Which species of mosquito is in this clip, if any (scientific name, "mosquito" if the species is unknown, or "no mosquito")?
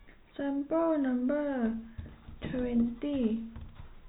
no mosquito